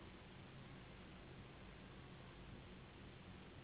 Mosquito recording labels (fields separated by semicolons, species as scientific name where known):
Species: Anopheles gambiae s.s.; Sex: female; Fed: unfed; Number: one; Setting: insect culture